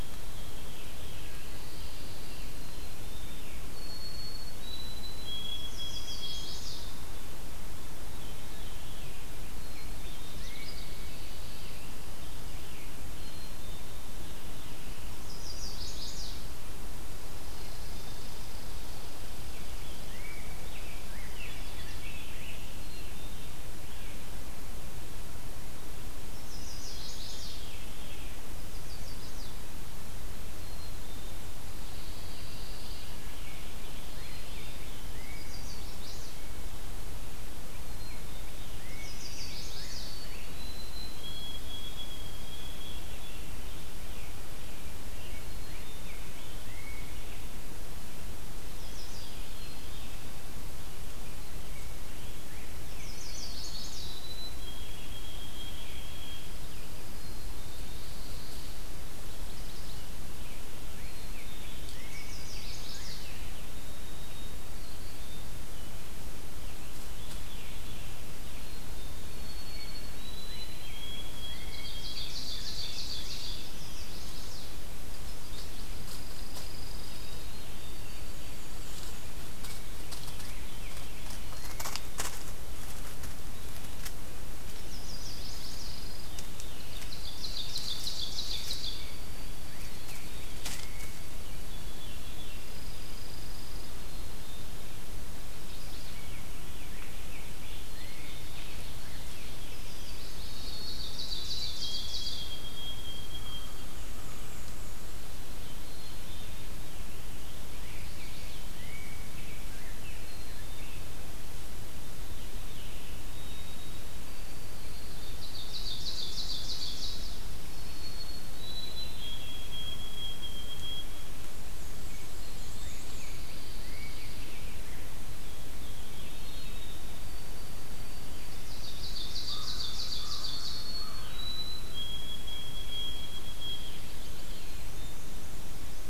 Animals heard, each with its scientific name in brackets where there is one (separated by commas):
Black-and-white Warbler (Mniotilta varia), Black-capped Chickadee (Poecile atricapillus), White-throated Sparrow (Zonotrichia albicollis), Chestnut-sided Warbler (Setophaga pensylvanica), American Crow (Corvus brachyrhynchos), Veery (Catharus fuscescens), Rose-breasted Grosbeak (Pheucticus ludovicianus), Pine Warbler (Setophaga pinus), Red Squirrel (Tamiasciurus hudsonicus), Ovenbird (Seiurus aurocapilla), Dark-eyed Junco (Junco hyemalis)